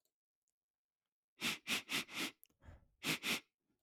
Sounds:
Sniff